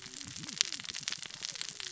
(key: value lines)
label: biophony, cascading saw
recorder: SoundTrap 600 or HydroMoth